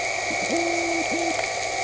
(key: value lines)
label: anthrophony, boat engine
recorder: HydroMoth